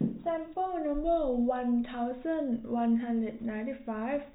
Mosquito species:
no mosquito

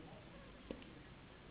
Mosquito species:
Anopheles gambiae s.s.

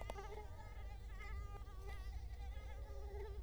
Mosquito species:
Culex quinquefasciatus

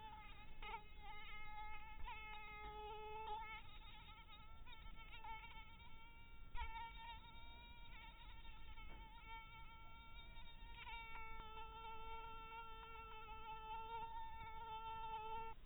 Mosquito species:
mosquito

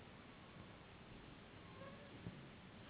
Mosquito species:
Anopheles gambiae s.s.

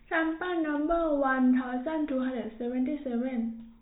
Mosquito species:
no mosquito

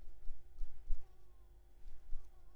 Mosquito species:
Anopheles coustani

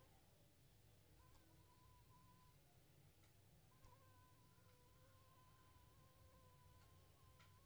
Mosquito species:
Anopheles funestus s.s.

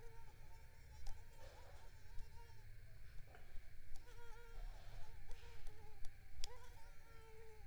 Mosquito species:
Culex tigripes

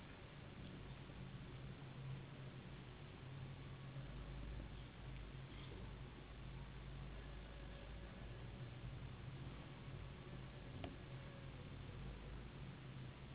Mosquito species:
Anopheles gambiae s.s.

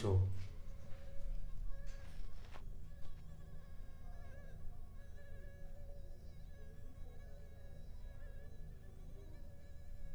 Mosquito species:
Anopheles arabiensis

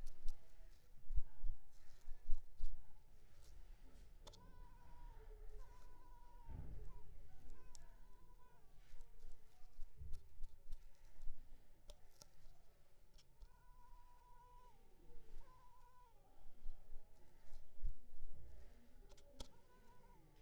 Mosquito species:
Culex pipiens complex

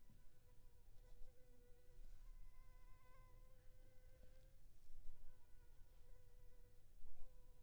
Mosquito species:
Anopheles funestus s.s.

